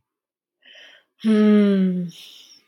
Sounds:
Sigh